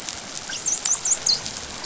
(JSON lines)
{"label": "biophony, dolphin", "recorder": "SoundTrap 500"}